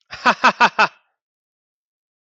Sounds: Laughter